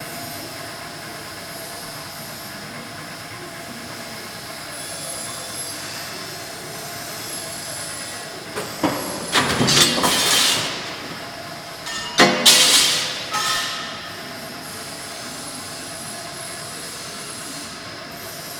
Is this happening inside?
yes